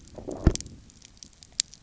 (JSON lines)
{"label": "biophony, low growl", "recorder": "SoundTrap 300"}